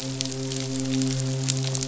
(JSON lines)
{"label": "biophony, midshipman", "recorder": "SoundTrap 500"}